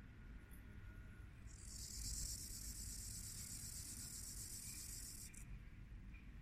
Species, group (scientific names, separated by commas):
Gomphocerippus rufus, Orthoptera